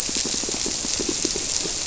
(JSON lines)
{"label": "biophony, squirrelfish (Holocentrus)", "recorder": "SoundTrap 300"}